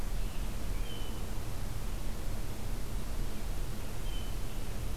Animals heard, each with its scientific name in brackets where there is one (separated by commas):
American Robin (Turdus migratorius)